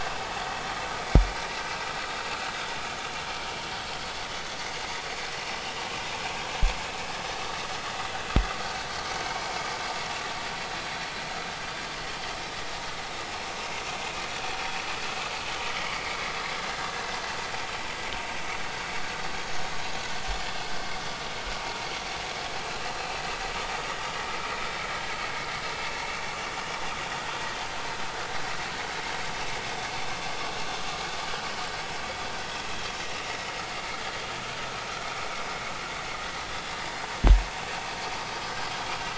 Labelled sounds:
9.1	9.5	vessel noise, 2.1 to 2.4 kHz
15.8	16.2	vessel noise, 2.1 to 2.4 kHz

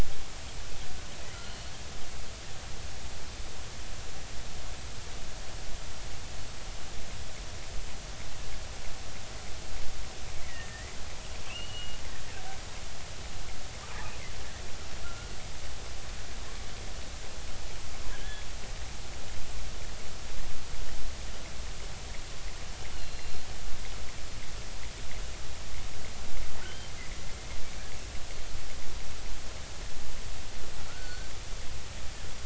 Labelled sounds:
1.4	1.8	killer whale, offshore, 4.2 to 4.4 kHz
10.4	10.9	killer whale, offshore, 1.7 to 2.1 kHz
11.5	12.0	killer whale, offshore, 2.5 to 3.0 kHz
15.0	15.3	killer whale, offshore, 1.3 to 1.5 kHz
18.1	18.4	killer whale, offshore, 1.5 to 1.8 kHz
22.9	23.5	killer whale, offshore, 4.1 to 4.4 kHz
26.6	26.9	killer whale, offshore, 2.8 to 3.2 kHz
30.9	31.3	killer whale, offshore, 1.2 to 4.6 kHz

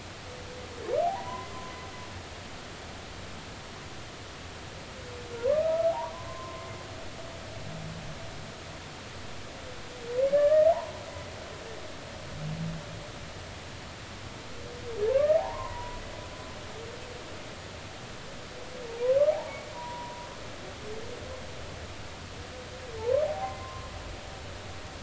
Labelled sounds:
1.0	1.6	humpback whale, 0.80 to 2.1 kHz
5.3	6.7	humpback whale, 0.90 to 1.4 kHz
10.3	10.9	humpback whale, 0.80 to 1.9 kHz
15.1	16.0	humpback whale, 0.80 to 1.3 kHz
19.3	20.3	humpback whale, 0.80 to 1.1 kHz
23.0	23.9	humpback whale, 0.80 to 2.1 kHz

